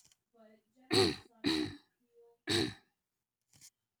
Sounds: Throat clearing